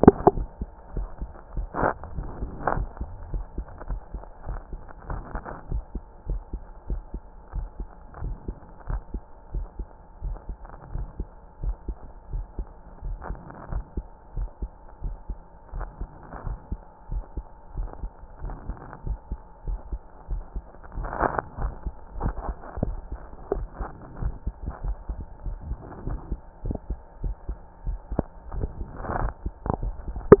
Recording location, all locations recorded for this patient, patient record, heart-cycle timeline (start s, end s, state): mitral valve (MV)
aortic valve (AV)+pulmonary valve (PV)+tricuspid valve (TV)+mitral valve (MV)
#Age: Child
#Sex: Male
#Height: 146.0 cm
#Weight: 34.8 kg
#Pregnancy status: False
#Murmur: Absent
#Murmur locations: nan
#Most audible location: nan
#Systolic murmur timing: nan
#Systolic murmur shape: nan
#Systolic murmur grading: nan
#Systolic murmur pitch: nan
#Systolic murmur quality: nan
#Diastolic murmur timing: nan
#Diastolic murmur shape: nan
#Diastolic murmur grading: nan
#Diastolic murmur pitch: nan
#Diastolic murmur quality: nan
#Outcome: Normal
#Campaign: 2014 screening campaign
0.00	3.25	unannotated
3.25	3.32	diastole
3.32	3.44	S1
3.44	3.56	systole
3.56	3.66	S2
3.66	3.88	diastole
3.88	4.00	S1
4.00	4.14	systole
4.14	4.22	S2
4.22	4.48	diastole
4.48	4.60	S1
4.60	4.72	systole
4.72	4.80	S2
4.80	5.08	diastole
5.08	5.22	S1
5.22	5.34	systole
5.34	5.42	S2
5.42	5.70	diastole
5.70	5.82	S1
5.82	5.94	systole
5.94	6.02	S2
6.02	6.28	diastole
6.28	6.42	S1
6.42	6.52	systole
6.52	6.62	S2
6.62	6.90	diastole
6.90	7.02	S1
7.02	7.14	systole
7.14	7.22	S2
7.22	7.54	diastole
7.54	7.68	S1
7.68	7.78	systole
7.78	7.88	S2
7.88	8.22	diastole
8.22	8.36	S1
8.36	8.48	systole
8.48	8.56	S2
8.56	8.88	diastole
8.88	9.02	S1
9.02	9.12	systole
9.12	9.22	S2
9.22	9.54	diastole
9.54	9.66	S1
9.66	9.78	systole
9.78	9.86	S2
9.86	10.24	diastole
10.24	10.38	S1
10.38	10.48	systole
10.48	10.56	S2
10.56	10.94	diastole
10.94	11.08	S1
11.08	11.18	systole
11.18	11.28	S2
11.28	11.62	diastole
11.62	11.76	S1
11.76	11.88	systole
11.88	11.96	S2
11.96	12.32	diastole
12.32	12.46	S1
12.46	12.58	systole
12.58	12.66	S2
12.66	13.04	diastole
13.04	13.18	S1
13.18	13.30	systole
13.30	13.38	S2
13.38	13.72	diastole
13.72	13.84	S1
13.84	13.96	systole
13.96	14.04	S2
14.04	14.36	diastole
14.36	14.48	S1
14.48	14.60	systole
14.60	14.70	S2
14.70	15.04	diastole
15.04	15.16	S1
15.16	15.28	systole
15.28	15.38	S2
15.38	15.74	diastole
15.74	15.88	S1
15.88	16.00	systole
16.00	16.08	S2
16.08	16.46	diastole
16.46	16.58	S1
16.58	16.70	systole
16.70	16.80	S2
16.80	17.12	diastole
17.12	17.24	S1
17.24	17.36	systole
17.36	17.44	S2
17.44	17.76	diastole
17.76	17.90	S1
17.90	18.02	systole
18.02	18.10	S2
18.10	18.42	diastole
18.42	18.56	S1
18.56	18.68	systole
18.68	18.76	S2
18.76	19.06	diastole
19.06	19.18	S1
19.18	19.30	systole
19.30	19.38	S2
19.38	19.66	diastole
19.66	19.80	S1
19.80	19.90	systole
19.90	20.00	S2
20.00	20.30	diastole
20.30	20.42	S1
20.42	20.54	systole
20.54	20.62	S2
20.62	20.96	diastole
20.96	30.40	unannotated